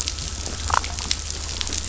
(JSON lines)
{"label": "biophony, damselfish", "recorder": "SoundTrap 500"}